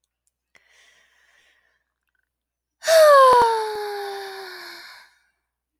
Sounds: Sigh